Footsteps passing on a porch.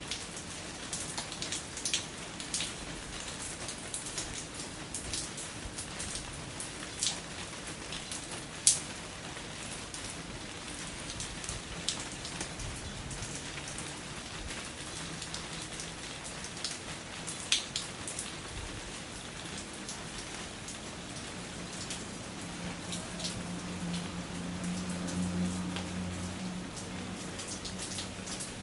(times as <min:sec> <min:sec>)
0:22.7 0:28.6